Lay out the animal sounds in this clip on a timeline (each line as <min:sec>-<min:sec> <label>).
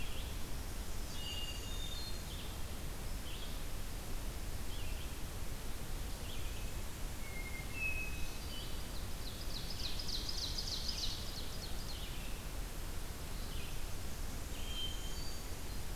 0:00.0-0:07.0 Red-eyed Vireo (Vireo olivaceus)
0:01.0-0:02.6 Hermit Thrush (Catharus guttatus)
0:07.2-0:09.3 Hermit Thrush (Catharus guttatus)
0:07.9-0:09.0 Black-throated Green Warbler (Setophaga virens)
0:08.8-0:11.8 Ovenbird (Seiurus aurocapilla)
0:14.4-0:15.9 Hermit Thrush (Catharus guttatus)